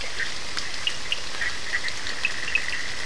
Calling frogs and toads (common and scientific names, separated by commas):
Bischoff's tree frog (Boana bischoffi), Cochran's lime tree frog (Sphaenorhynchus surdus)